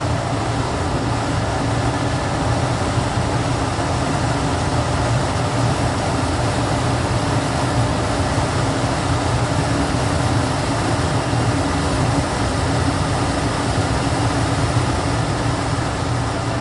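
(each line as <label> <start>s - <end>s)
The heavy engine is loud outdoors. 0.0s - 16.6s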